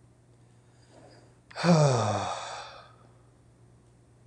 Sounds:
Sigh